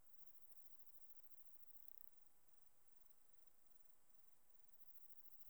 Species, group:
Platycleis affinis, Orthoptera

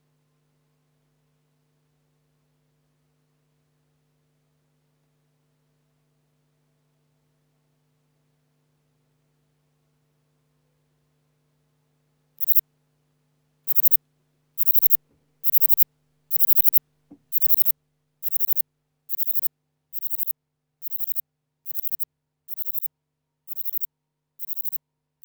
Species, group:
Platycleis intermedia, Orthoptera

